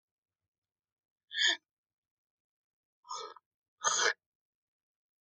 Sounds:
Throat clearing